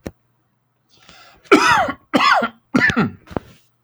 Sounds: Cough